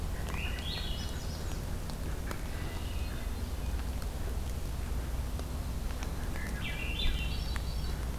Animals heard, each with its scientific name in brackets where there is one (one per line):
Swainson's Thrush (Catharus ustulatus)
Hermit Thrush (Catharus guttatus)